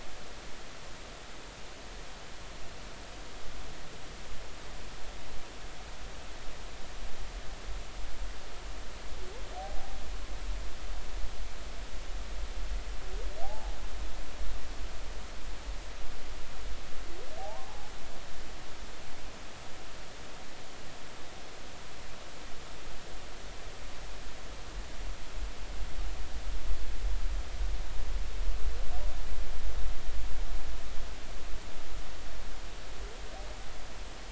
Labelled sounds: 9.5	10.0	humpback whale, 0.80 to 0.86 kHz
13.4	13.8	humpback whale, 0.80 to 0.93 kHz
17.4	17.9	humpback whale, 0.80 to 1.1 kHz

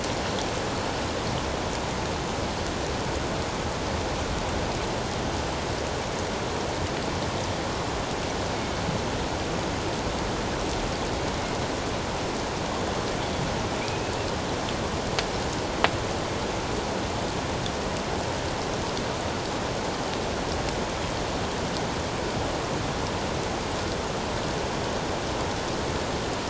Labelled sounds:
13.8	14.1	killer whale, northern resident, G clan, 2.2 to 2.7 kHz

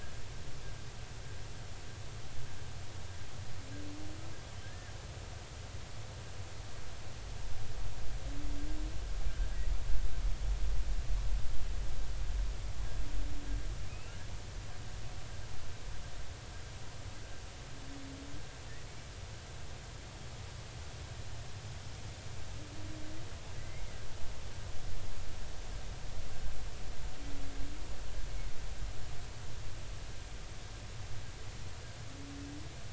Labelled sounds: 4.6	4.9	humpback whale, 1.5 to 1.8 kHz
9.3	9.6	humpback whale, 1.5 to 1.7 kHz
13.9	14.2	humpback whale, 2.3 to 2.9 kHz
23.6	23.9	humpback whale, 1.9 to 2.2 kHz

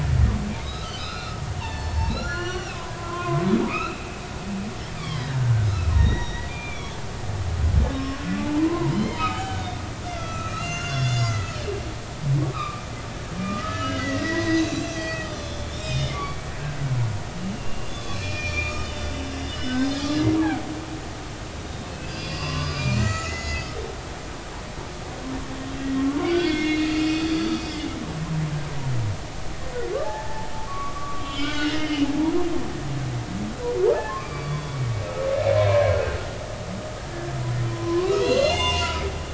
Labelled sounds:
0.6	5.3	humpback whale, 0.83 to 7.1 kHz
5.9	7.0	humpback whale, 1.8 to 6.0 kHz
7.9	11.6	humpback whale, 0.83 to 6.4 kHz
12.4	19.9	humpback whale, 0.90 to 5.4 kHz
21.7	23.7	humpback whale, 0.99 to 6.8 kHz
26.0	28.0	humpback whale, 0.99 to 4.9 kHz
30.0	32.5	humpback whale, 0.80 to 3.4 kHz
32.7	33.0	humpback whale, 2.0 to 2.2 kHz
34.1	34.8	humpback whale, 0.99 to 4.8 kHz
35.7	35.9	humpback whale, 2.2 to 2.4 kHz
37.7	39.0	humpback whale, 0.80 to 6.4 kHz

